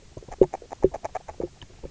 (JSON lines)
{"label": "biophony, grazing", "recorder": "SoundTrap 300"}